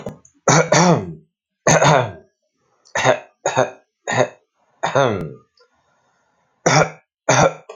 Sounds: Cough